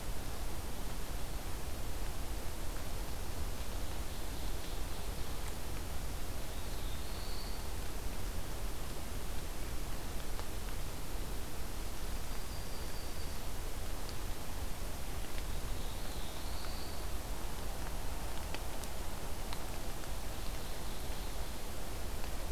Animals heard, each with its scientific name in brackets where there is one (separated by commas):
Black-throated Blue Warbler (Setophaga caerulescens), Yellow-rumped Warbler (Setophaga coronata), Ovenbird (Seiurus aurocapilla)